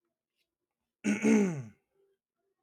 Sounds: Throat clearing